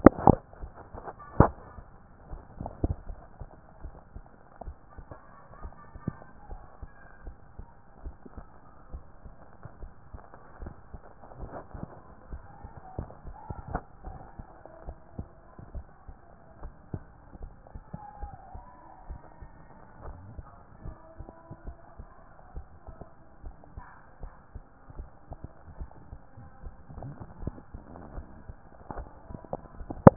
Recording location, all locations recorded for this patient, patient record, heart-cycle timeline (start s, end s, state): tricuspid valve (TV)
aortic valve (AV)+pulmonary valve (PV)+tricuspid valve (TV)+mitral valve (MV)
#Age: nan
#Sex: Female
#Height: nan
#Weight: nan
#Pregnancy status: True
#Murmur: Absent
#Murmur locations: nan
#Most audible location: nan
#Systolic murmur timing: nan
#Systolic murmur shape: nan
#Systolic murmur grading: nan
#Systolic murmur pitch: nan
#Systolic murmur quality: nan
#Diastolic murmur timing: nan
#Diastolic murmur shape: nan
#Diastolic murmur grading: nan
#Diastolic murmur pitch: nan
#Diastolic murmur quality: nan
#Outcome: Normal
#Campaign: 2014 screening campaign
0.16	0.58	diastole
0.58	0.72	S1
0.72	0.92	systole
0.92	1.04	S2
1.04	1.38	diastole
1.38	1.56	S1
1.56	1.76	systole
1.76	1.86	S2
1.86	2.28	diastole
2.28	2.42	S1
2.42	2.58	systole
2.58	2.74	S2
2.74	3.04	diastole
3.04	3.18	S1
3.18	3.40	systole
3.40	3.50	S2
3.50	3.82	diastole
3.82	3.96	S1
3.96	4.14	systole
4.14	4.24	S2
4.24	4.62	diastole
4.62	4.76	S1
4.76	5.06	systole
5.06	5.16	S2
5.16	5.60	diastole
5.60	5.72	S1
5.72	5.94	systole
5.94	6.06	S2
6.06	6.50	diastole
6.50	6.64	S1
6.64	6.82	systole
6.82	6.92	S2
6.92	7.26	diastole
7.26	7.36	S1
7.36	7.58	systole
7.58	7.68	S2
7.68	8.04	diastole
8.04	8.16	S1
8.16	8.36	systole
8.36	8.46	S2
8.46	8.92	diastole
8.92	9.04	S1
9.04	9.24	systole
9.24	9.34	S2
9.34	9.78	diastole
9.78	9.92	S1
9.92	10.14	systole
10.14	10.24	S2
10.24	10.62	diastole
10.62	10.76	S1
10.76	10.94	systole
10.94	11.00	S2
11.00	11.38	diastole
11.38	11.52	S1
11.52	11.74	systole
11.74	11.88	S2
11.88	12.28	diastole
12.28	12.42	S1
12.42	12.64	systole
12.64	12.78	S2
12.78	13.26	diastole
13.26	13.38	S1
13.38	13.58	systole
13.58	13.66	S2
13.66	14.06	diastole
14.06	14.20	S1
14.20	14.38	systole
14.38	14.48	S2
14.48	14.84	diastole
14.84	14.96	S1
14.96	15.16	systole
15.16	15.28	S2
15.28	15.72	diastole
15.72	15.86	S1
15.86	16.08	systole
16.08	16.18	S2
16.18	16.60	diastole
16.60	16.74	S1
16.74	16.94	systole
16.94	17.06	S2
17.06	17.42	diastole
17.42	17.56	S1
17.56	17.74	systole
17.74	17.84	S2
17.84	18.20	diastole
18.20	18.34	S1
18.34	18.54	systole
18.54	18.64	S2
18.64	19.06	diastole
19.06	19.20	S1
19.20	19.42	systole
19.42	19.56	S2
19.56	20.02	diastole
20.02	20.18	S1
20.18	20.36	systole
20.36	20.48	S2
20.48	20.84	diastole
20.84	20.98	S1
20.98	21.20	systole
21.20	21.30	S2
21.30	21.64	diastole
21.64	21.78	S1
21.78	22.00	systole
22.00	22.10	S2
22.10	22.54	diastole
22.54	22.66	S1
22.66	22.88	systole
22.88	22.98	S2
22.98	23.42	diastole
23.42	23.56	S1
23.56	23.76	systole
23.76	23.84	S2
23.84	24.22	diastole
24.22	24.34	S1
24.34	24.56	systole
24.56	24.62	S2
24.62	24.96	diastole
24.96	25.10	S1
25.10	25.32	systole
25.32	25.40	S2
25.40	25.78	diastole
25.78	25.90	S1
25.90	26.12	systole
26.12	26.22	S2
26.22	26.62	diastole
26.62	26.76	S1
26.76	26.96	systole
26.96	27.12	S2
27.12	27.42	diastole
27.42	27.56	S1
27.56	27.74	systole
27.74	27.84	S2
27.84	28.14	diastole
28.14	28.28	S1
28.28	28.46	systole
28.46	28.56	S2
28.56	28.96	diastole
28.96	29.10	S1
29.10	29.30	systole
29.30	29.40	S2
29.40	29.76	diastole
29.76	29.88	S1
29.88	30.04	systole
30.04	30.16	S2